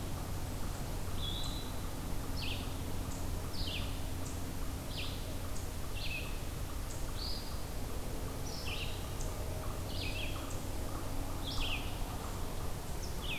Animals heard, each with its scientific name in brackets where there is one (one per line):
Eastern Wood-Pewee (Contopus virens)
Red-eyed Vireo (Vireo olivaceus)
unknown mammal